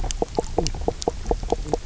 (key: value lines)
label: biophony, knock croak
recorder: SoundTrap 300